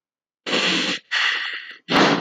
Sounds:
Sigh